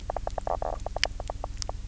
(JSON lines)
{"label": "biophony, knock croak", "recorder": "SoundTrap 300"}